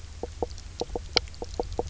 {"label": "biophony, knock croak", "recorder": "SoundTrap 300"}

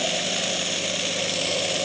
{"label": "anthrophony, boat engine", "recorder": "HydroMoth"}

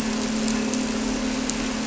{"label": "anthrophony, boat engine", "recorder": "SoundTrap 300"}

